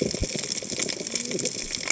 {"label": "biophony, cascading saw", "recorder": "HydroMoth"}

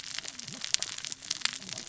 {"label": "biophony, cascading saw", "recorder": "SoundTrap 600 or HydroMoth"}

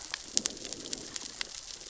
{"label": "biophony, growl", "recorder": "SoundTrap 600 or HydroMoth"}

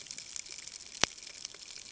{"label": "ambient", "recorder": "HydroMoth"}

